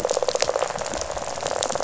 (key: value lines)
label: biophony, rattle
recorder: SoundTrap 500